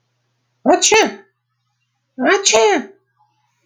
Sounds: Sniff